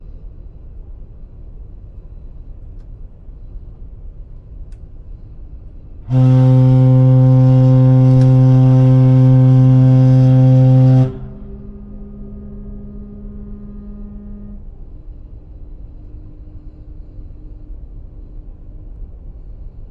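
Soft noise. 0:00.0 - 0:05.9
A loud ship horn sounds. 0:05.9 - 0:11.4
A muffled whirring sound. 0:11.3 - 0:19.9

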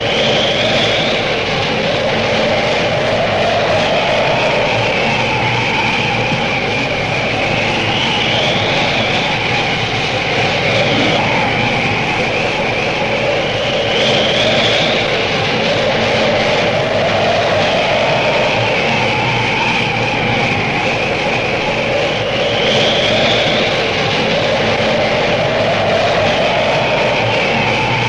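Intense wind continuously hits against a surface, forcefully colliding with it. 0:00.0 - 0:28.1

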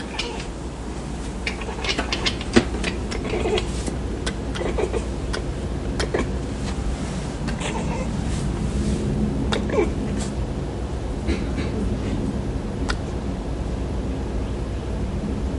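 White noise is heard in the background. 0:00.0 - 0:15.6
An unknown object is being pressed down. 0:01.7 - 0:02.7
Crackling sound from an unknown source. 0:04.1 - 0:04.4
An animal sound. 0:04.6 - 0:05.2
Crackling sound from an unknown source. 0:05.9 - 0:06.4
An unknown object is being pressed down. 0:09.4 - 0:10.0
A squeaking sound is heard in the background. 0:11.2 - 0:11.4
Crackling sound from an unknown source. 0:12.8 - 0:13.0

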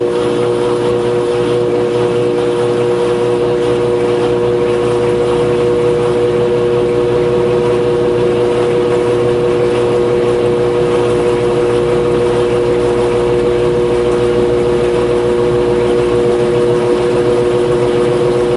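A washing machine spins clothes rapidly. 0:00.1 - 0:08.4

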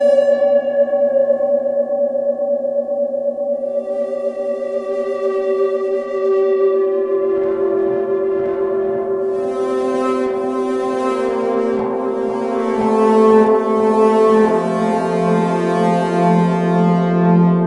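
A creepy metallic guitar plays with a sharp impact and lingering reverb. 0:00.0 - 0:03.7
Two eerie guitar tones sound, one steady and one oscillating in pitch. 0:03.7 - 0:06.8
Two tones produce a continuous buzzing sound. 0:06.8 - 0:09.3
A strong tone sounds twice, creating a melodic pattern. 0:09.3 - 0:12.7
The same melodic phrase is played louder and more intensely. 0:12.7 - 0:14.6
A deep, heavy tone is sustained with a dark, lingering atmosphere. 0:14.6 - 0:17.6

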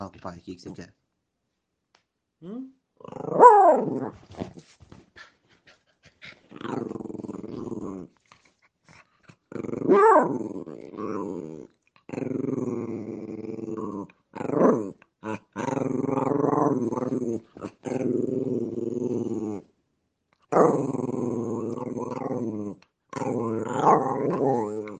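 A person is speaking to a dog. 0:00.1 - 0:00.9
A person is talking to a dog. 0:02.4 - 0:02.8
A dog is growling with its mouth closed. 0:02.9 - 0:04.4
A dog is panting. 0:05.7 - 0:06.5
A dog is growling with its mouth closed. 0:06.5 - 0:08.1
A dog growls repeatedly with its mouth closed. 0:09.4 - 0:19.6
A dog growls repeatedly with its mouth closed. 0:20.4 - 0:25.0

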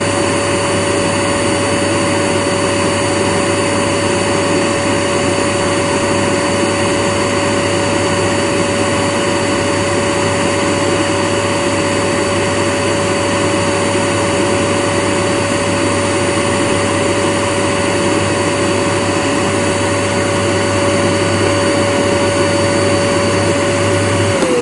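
A vacuum cleaner is running. 0:00.0 - 0:24.6

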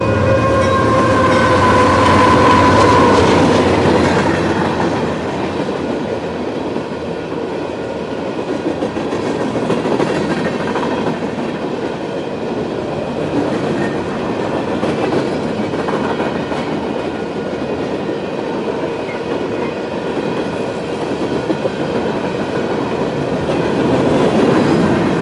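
A train running on tracks. 0:00.0 - 0:25.2

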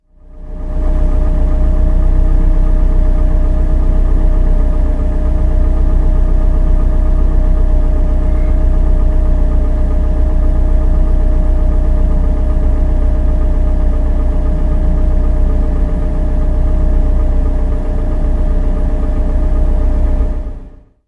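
The muffled sound of an engine resonating outside. 0:00.1 - 0:21.1

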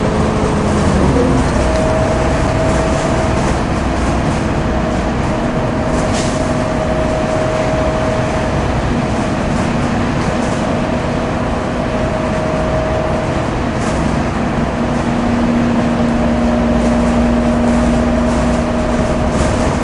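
Mechanical engine and turbine induction noise from a vehicle. 0:00.0 - 0:19.8

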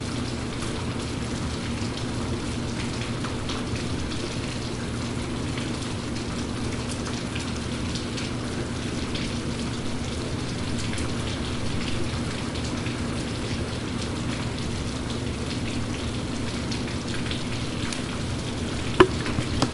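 Calm rain falling. 0:00.0 - 0:19.7
A short clipping sound. 0:18.7 - 0:19.7

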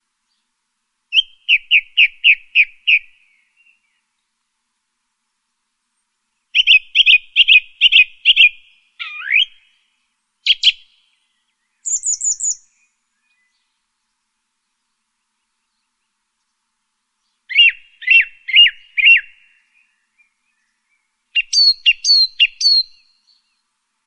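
A bird chirps at a high frequency with short pauses in between. 0:01.1 - 0:03.1
A bird chirps. 0:06.5 - 0:09.5
A bird chirps with a small pause between sounds. 0:10.4 - 0:10.8
A bird chirps repeatedly with small pauses in between. 0:11.8 - 0:12.6
A bird chirps repeatedly with small pauses in between. 0:17.5 - 0:19.3
A bird chirps repeatedly with small pauses in between. 0:21.3 - 0:22.9

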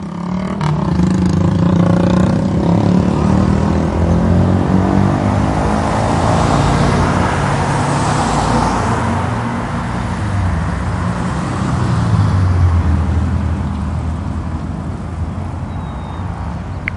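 A motorbike starting loud and gradually fading to a low hum as it moves away. 0:00.0 - 0:06.5
Several cars pass by with heavy, rumbling sounds simultaneously. 0:06.4 - 0:16.7
A motorbike passes by with its loud sound gradually fading. 0:06.5 - 0:09.6

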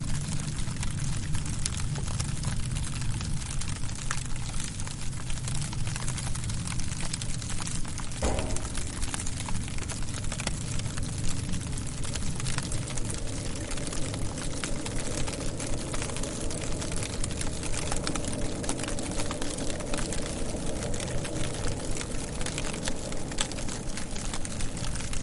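A fire is burning in a fireplace. 0:00.0 - 0:25.2

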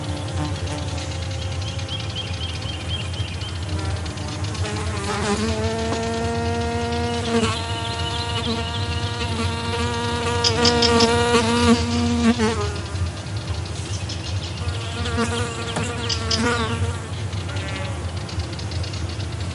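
A bee buzzes rapidly with a high-pitched hum in a natural outdoor setting. 0:00.0 - 0:04.6
Birds chirp while bees buzz in the background. 0:06.6 - 0:17.5

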